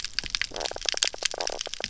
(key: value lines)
label: biophony, knock croak
recorder: SoundTrap 300